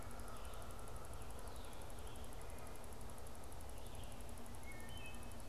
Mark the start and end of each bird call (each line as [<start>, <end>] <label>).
[0.00, 1.26] Canada Goose (Branta canadensis)
[0.00, 5.48] Red-eyed Vireo (Vireo olivaceus)
[4.56, 5.36] Wood Thrush (Hylocichla mustelina)